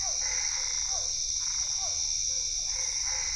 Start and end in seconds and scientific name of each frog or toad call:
0.0	1.2	Boana lundii
0.0	3.3	Boana albopunctata
0.0	3.3	Physalaemus cuvieri
2.2	3.3	Boana lundii